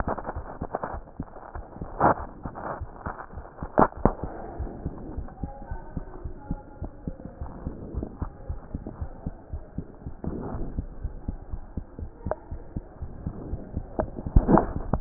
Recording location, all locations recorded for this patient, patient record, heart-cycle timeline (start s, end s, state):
aortic valve (AV)
aortic valve (AV)+pulmonary valve (PV)+tricuspid valve (TV)+mitral valve (MV)
#Age: Child
#Sex: Female
#Height: 121.0 cm
#Weight: 19.3 kg
#Pregnancy status: False
#Murmur: Absent
#Murmur locations: nan
#Most audible location: nan
#Systolic murmur timing: nan
#Systolic murmur shape: nan
#Systolic murmur grading: nan
#Systolic murmur pitch: nan
#Systolic murmur quality: nan
#Diastolic murmur timing: nan
#Diastolic murmur shape: nan
#Diastolic murmur grading: nan
#Diastolic murmur pitch: nan
#Diastolic murmur quality: nan
#Outcome: Abnormal
#Campaign: 2014 screening campaign
0.00	4.44	unannotated
4.44	4.58	diastole
4.58	4.70	S1
4.70	4.84	systole
4.84	4.92	S2
4.92	5.16	diastole
5.16	5.28	S1
5.28	5.42	systole
5.42	5.52	S2
5.52	5.70	diastole
5.70	5.80	S1
5.80	5.96	systole
5.96	6.04	S2
6.04	6.24	diastole
6.24	6.34	S1
6.34	6.50	systole
6.50	6.60	S2
6.60	6.82	diastole
6.82	6.92	S1
6.92	7.06	systole
7.06	7.16	S2
7.16	7.40	diastole
7.40	7.50	S1
7.50	7.64	systole
7.64	7.74	S2
7.74	7.94	diastole
7.94	8.08	S1
8.08	8.20	systole
8.20	8.30	S2
8.30	8.48	diastole
8.48	8.60	S1
8.60	8.72	systole
8.72	8.82	S2
8.82	9.00	diastole
9.00	9.10	S1
9.10	9.24	systole
9.24	9.34	S2
9.34	9.52	diastole
9.52	9.62	S1
9.62	9.76	systole
9.76	9.86	S2
9.86	10.05	diastole
10.05	10.14	S1
10.14	10.26	systole
10.26	10.34	S2
10.34	10.54	diastole
10.54	10.66	S1
10.66	10.76	systole
10.76	10.86	S2
10.86	11.02	diastole
11.02	11.14	S1
11.14	11.26	systole
11.26	11.38	S2
11.38	11.52	diastole
11.52	11.62	S1
11.62	11.76	systole
11.76	11.84	S2
11.84	12.00	diastole
12.00	12.10	S1
12.10	12.24	systole
12.24	12.34	S2
12.34	12.52	diastole
12.52	12.62	S1
12.62	12.74	systole
12.74	12.84	S2
12.84	13.04	diastole
13.04	13.12	S1
13.12	13.24	systole
13.24	13.32	S2
13.32	13.50	diastole
13.50	13.62	S1
13.62	13.74	systole
13.74	13.86	S2
13.86	13.99	diastole
13.99	15.01	unannotated